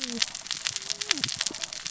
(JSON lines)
{"label": "biophony, cascading saw", "recorder": "SoundTrap 600 or HydroMoth"}